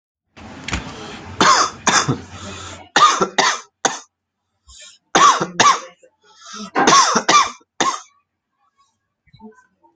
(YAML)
expert_labels:
- quality: good
  cough_type: dry
  dyspnea: false
  wheezing: false
  stridor: false
  choking: false
  congestion: false
  nothing: true
  diagnosis: upper respiratory tract infection
  severity: severe
gender: male
respiratory_condition: false
fever_muscle_pain: true
status: symptomatic